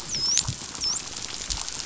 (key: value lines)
label: biophony, dolphin
recorder: SoundTrap 500